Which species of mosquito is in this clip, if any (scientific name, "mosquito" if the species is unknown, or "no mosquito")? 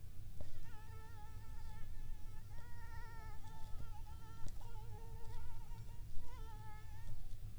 Anopheles arabiensis